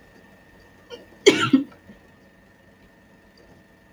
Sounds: Sneeze